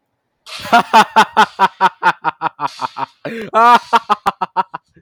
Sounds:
Laughter